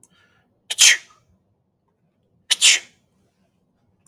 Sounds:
Sneeze